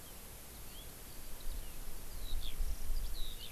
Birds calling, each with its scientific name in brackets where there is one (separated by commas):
Eurasian Skylark (Alauda arvensis)